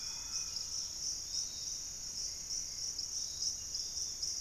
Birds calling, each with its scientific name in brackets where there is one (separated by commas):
Thrush-like Wren (Campylorhynchus turdinus), Hauxwell's Thrush (Turdus hauxwelli), Dusky-capped Greenlet (Pachysylvia hypoxantha), Great Tinamou (Tinamus major), Dusky-capped Flycatcher (Myiarchus tuberculifer), Piratic Flycatcher (Legatus leucophaius)